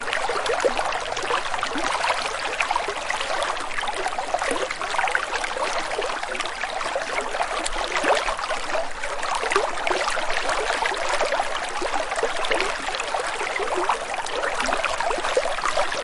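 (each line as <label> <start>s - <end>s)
Water flowing smoothly and calmly outdoors, close and steady. 0.0s - 16.0s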